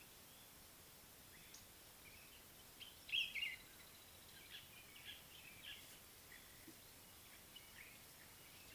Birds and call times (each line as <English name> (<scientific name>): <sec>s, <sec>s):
Common Bulbul (Pycnonotus barbatus): 3.1s
African Green-Pigeon (Treron calvus): 5.0s